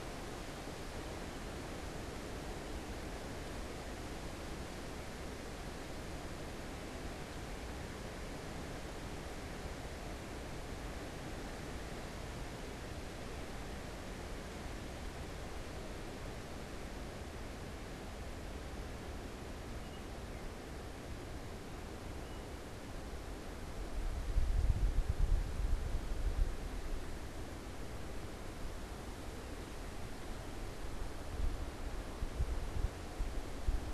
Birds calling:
unidentified bird

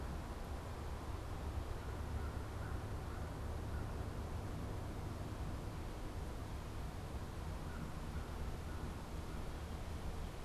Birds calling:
American Crow (Corvus brachyrhynchos)

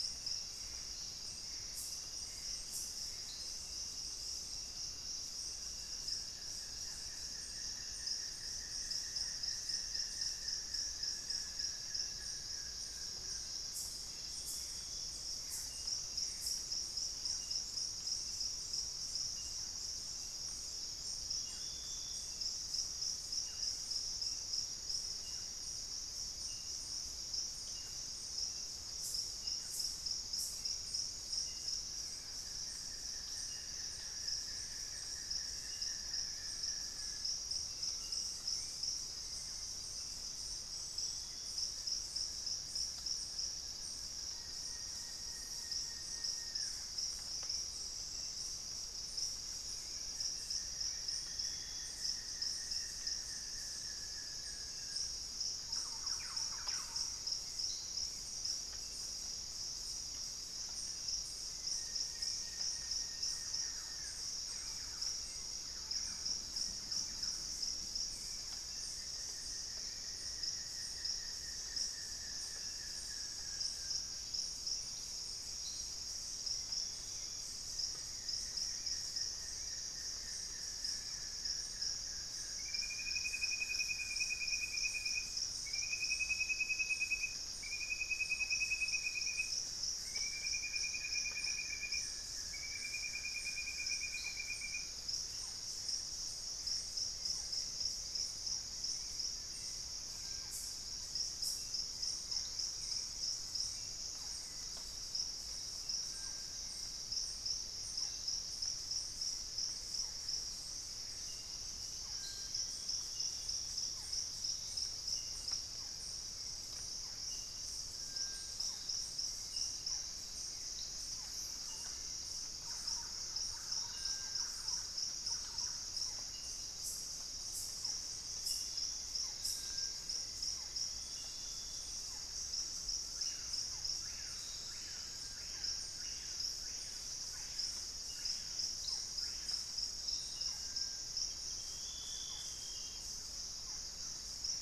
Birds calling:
Great Tinamou (Tinamus major), Screaming Piha (Lipaugus vociferans), Plain-winged Antshrike (Thamnophilus schistaceus), Buff-throated Woodcreeper (Xiphorhynchus guttatus), Hauxwell's Thrush (Turdus hauxwelli), Dusky-throated Antshrike (Thamnomanes ardesiacus), Thrush-like Wren (Campylorhynchus turdinus), Gray Antbird (Cercomacra cinerascens), unidentified bird, Barred Forest-Falcon (Micrastur ruficollis)

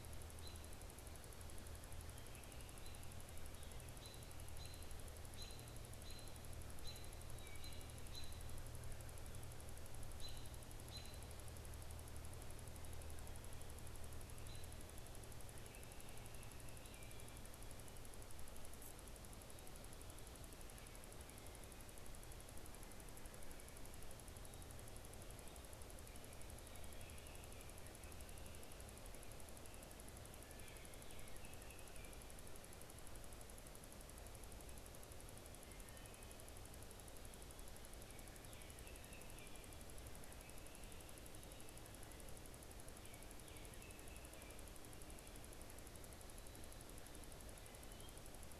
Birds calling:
American Robin (Turdus migratorius), Baltimore Oriole (Icterus galbula)

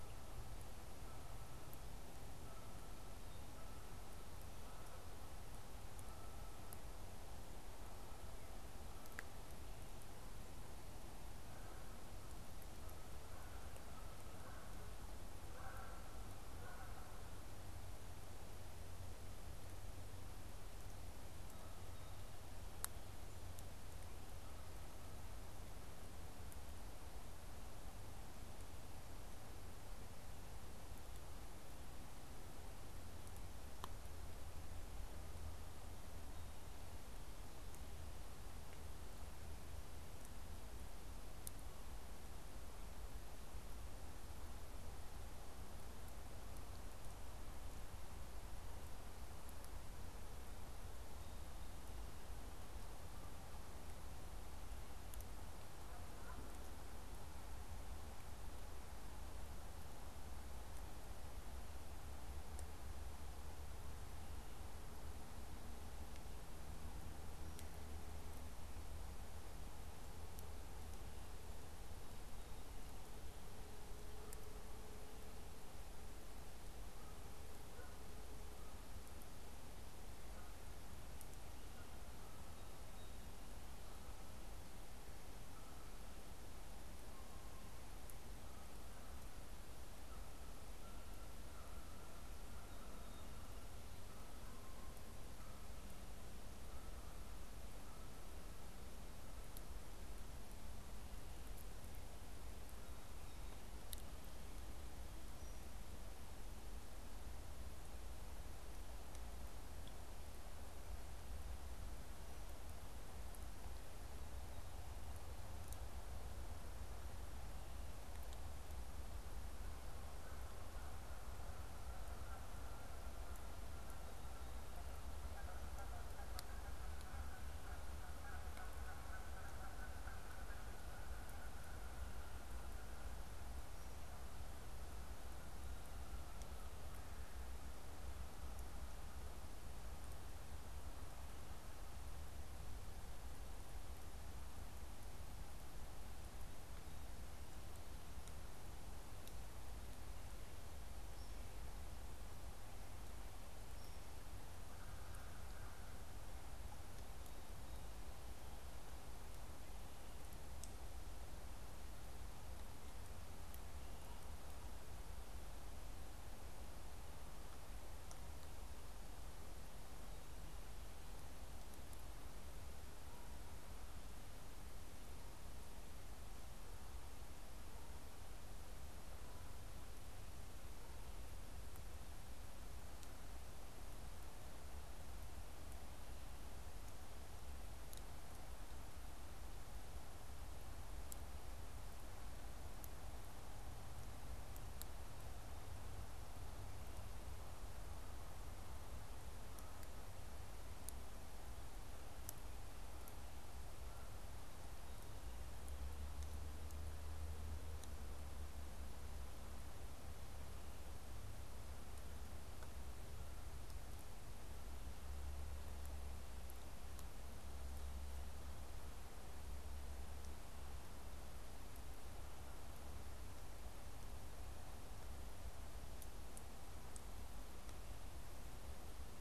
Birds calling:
American Crow (Corvus brachyrhynchos), Canada Goose (Branta canadensis)

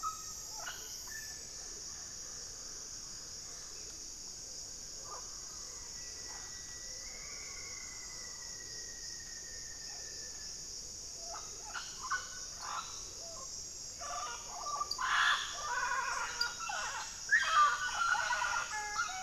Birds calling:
Mealy Parrot (Amazona farinosa), Black-faced Antthrush (Formicarius analis), Rufous-fronted Antthrush (Formicarius rufifrons), Wing-barred Piprites (Piprites chloris), White-rumped Sirystes (Sirystes albocinereus)

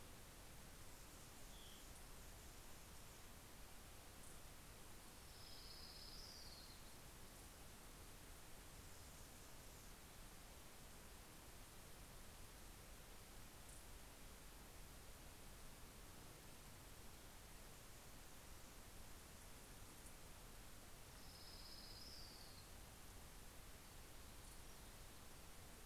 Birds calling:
Orange-crowned Warbler (Leiothlypis celata), Anna's Hummingbird (Calypte anna), Hermit Thrush (Catharus guttatus)

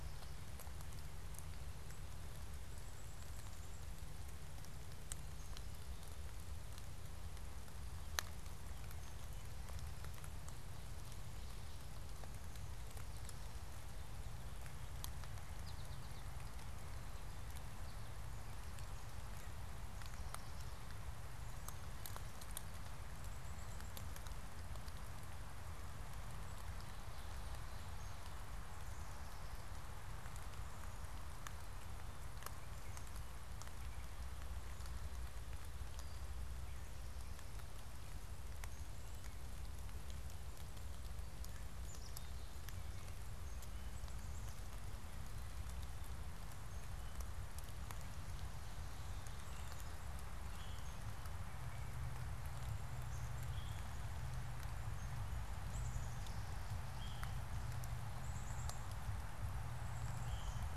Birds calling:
Veery (Catharus fuscescens), Black-capped Chickadee (Poecile atricapillus), American Goldfinch (Spinus tristis)

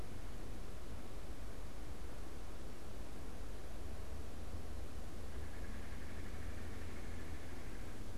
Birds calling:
Red-bellied Woodpecker (Melanerpes carolinus)

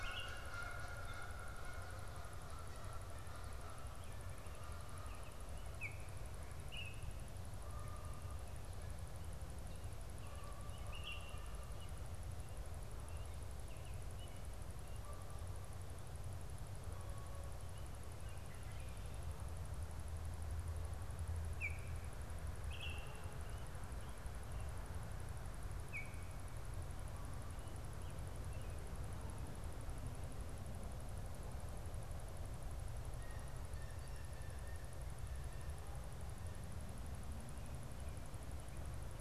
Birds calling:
Canada Goose (Branta canadensis), Baltimore Oriole (Icterus galbula), Blue Jay (Cyanocitta cristata)

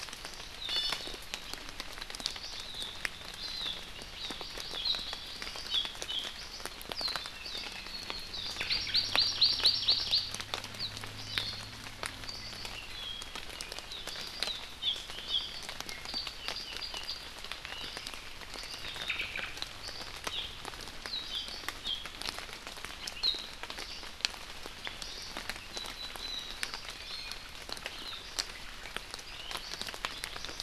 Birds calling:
Hawaii Amakihi (Chlorodrepanis virens), Hawaii Akepa (Loxops coccineus), Omao (Myadestes obscurus), Iiwi (Drepanis coccinea)

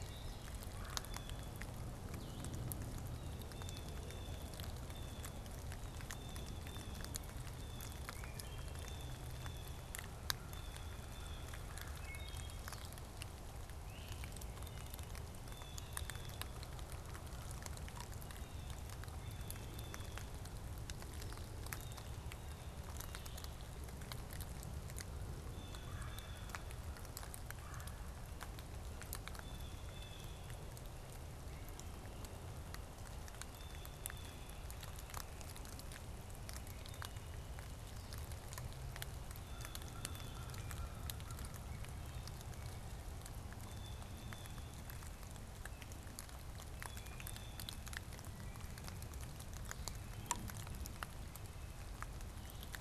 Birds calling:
Red-bellied Woodpecker (Melanerpes carolinus), Blue Jay (Cyanocitta cristata), Great Crested Flycatcher (Myiarchus crinitus), American Crow (Corvus brachyrhynchos), Blue-headed Vireo (Vireo solitarius), Wood Thrush (Hylocichla mustelina)

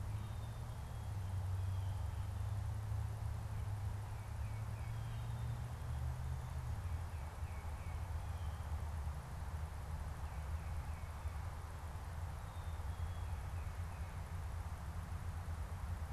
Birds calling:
Blue Jay (Cyanocitta cristata), Black-capped Chickadee (Poecile atricapillus), Tufted Titmouse (Baeolophus bicolor)

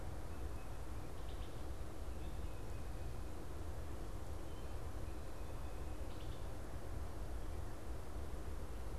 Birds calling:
Tufted Titmouse (Baeolophus bicolor), Wood Thrush (Hylocichla mustelina)

